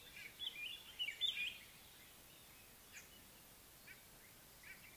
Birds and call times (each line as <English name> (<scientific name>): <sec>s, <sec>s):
White-browed Robin-Chat (Cossypha heuglini): 1.1s